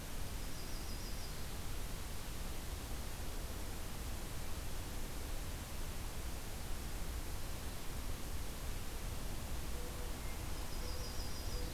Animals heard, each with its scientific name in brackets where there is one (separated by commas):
Yellow-rumped Warbler (Setophaga coronata)